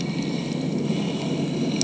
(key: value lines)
label: anthrophony, boat engine
recorder: HydroMoth